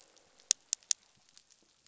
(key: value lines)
label: biophony, croak
recorder: SoundTrap 500